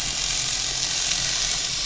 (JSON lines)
{"label": "anthrophony, boat engine", "recorder": "SoundTrap 500"}